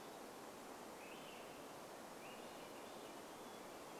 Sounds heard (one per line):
Hermit Thrush song
Swainson's Thrush song